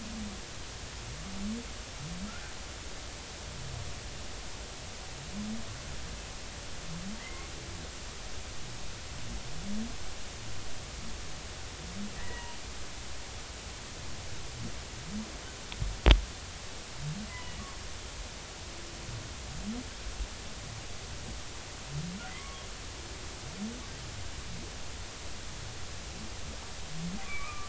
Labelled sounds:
2.3	2.5	humpback whale, 1.3 to 1.6 kHz
7.2	7.5	humpback whale, 1.8 to 2.2 kHz
12.2	12.6	humpback whale, 0.86 to 2.1 kHz
17.3	17.6	humpback whale, 1.9 to 2.1 kHz
22.3	22.6	humpback whale, 1.0 to 2.2 kHz
27.2	27.6	humpback whale, 1.1 to 2.6 kHz

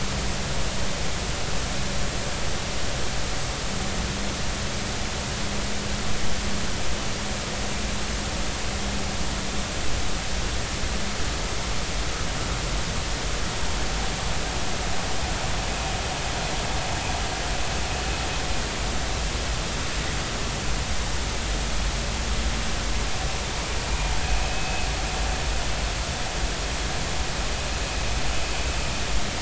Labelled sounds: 24.4	24.9	vessel noise, 2.5 to 2.6 kHz

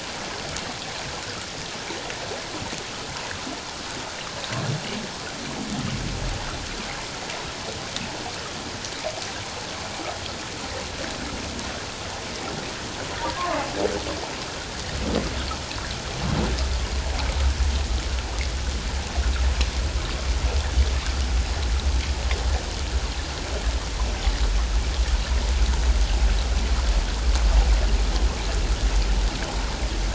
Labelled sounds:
13.4	13.6	humpback whale, 1.0 to 1.3 kHz

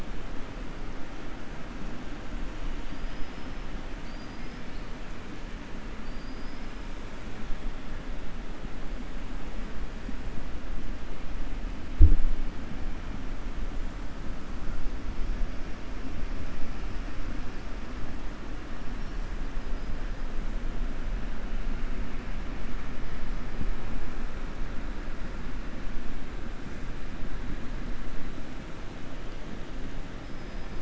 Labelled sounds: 6.0	6.8	killer whale, 4.4 to 5.4 kHz

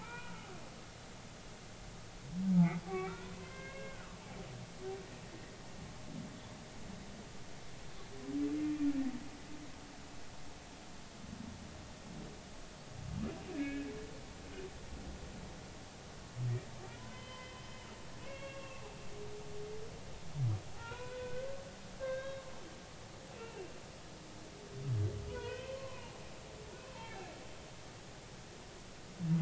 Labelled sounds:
0.0	0.5	humpback whale, 0.80 to 2.5 kHz
2.9	4.2	humpback whale, 0.96 to 2.8 kHz
8.6	8.9	humpback whale, 2.3 to 2.5 kHz
13.5	13.9	humpback whale, 1.6 to 2.6 kHz
17.0	17.5	humpback whale, 0.96 to 3.1 kHz
18.2	18.8	humpback whale, 1.0 to 3.4 kHz
20.7	21.5	humpback whale, 0.80 to 2.6 kHz
22.0	22.5	humpback whale, 1.5 to 3.8 kHz
23.4	23.7	humpback whale, 2.6 to 2.8 kHz
25.3	27.3	humpback whale, 0.80 to 3.2 kHz

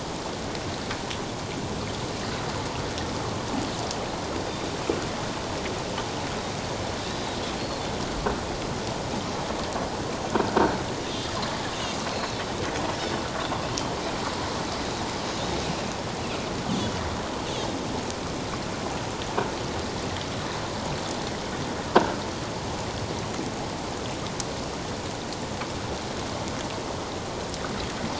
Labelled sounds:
7.1	7.9	Pacific white-sided dolphin, 3.5 to 4.4 kHz
11.0	11.3	Pacific white-sided dolphin, 3.4 to 3.8 kHz
12.1	12.5	Pacific white-sided dolphin, 3.8 to 5.5 kHz
21.9	22.2	croaking sound likely from a nearby submerged object, 1.5 to 1.7 kHz

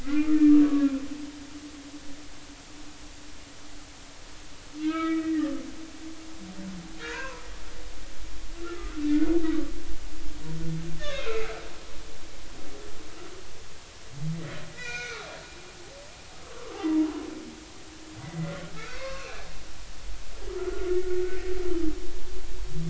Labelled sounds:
0.0	0.9	humpback whale, 1.0 to 2.2 kHz
4.8	5.5	humpback whale, 1.1 to 3.6 kHz
7.0	7.4	humpback whale, 0.93 to 1.7 kHz
8.6	8.9	humpback whale, 1.2 to 1.4 kHz
11.0	11.5	humpback whale, 2.4 to 6.6 kHz
14.7	15.3	humpback whale, 1.1 to 4.0 kHz
16.4	17.1	humpback whale, 0.83 to 1.2 kHz
18.2	19.5	humpback whale, 0.99 to 6.0 kHz
20.6	21.4	humpback whale, 1.2 to 1.6 kHz

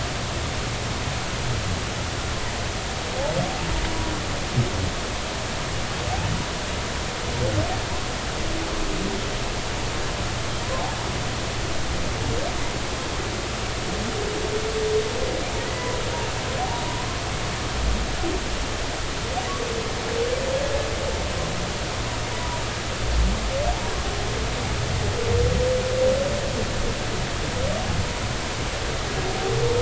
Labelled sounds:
10.6	10.9	humpback whale, 0.93 to 1.1 kHz
15.6	16.0	humpback whale, 1.8 to 2.0 kHz

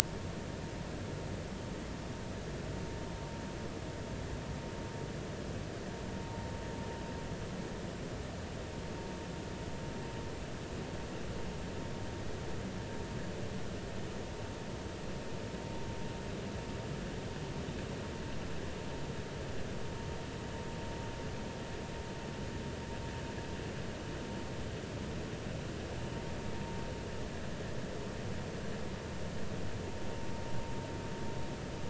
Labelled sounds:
6.2	6.5	vessel noise, 0.90 to 0.96 kHz

